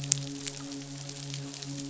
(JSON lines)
{"label": "biophony, midshipman", "recorder": "SoundTrap 500"}